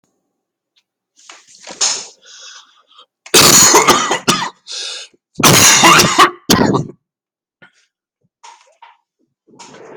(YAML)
expert_labels:
- quality: good
  cough_type: wet
  dyspnea: false
  wheezing: false
  stridor: false
  choking: false
  congestion: true
  nothing: false
  diagnosis: lower respiratory tract infection
  severity: severe
age: 59
gender: male
respiratory_condition: false
fever_muscle_pain: false
status: symptomatic